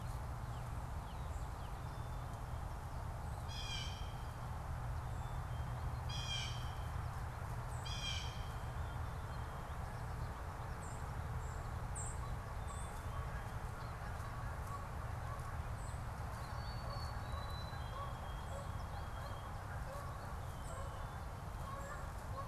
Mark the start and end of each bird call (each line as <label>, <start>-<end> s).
Blue Jay (Cyanocitta cristata), 3.2-8.5 s
White-throated Sparrow (Zonotrichia albicollis), 10.7-22.5 s
Canada Goose (Branta canadensis), 11.6-22.5 s